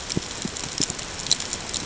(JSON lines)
{"label": "ambient", "recorder": "HydroMoth"}